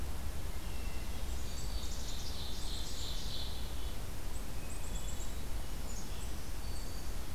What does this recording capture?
Hermit Thrush, Ovenbird, Black-capped Chickadee, Black-throated Green Warbler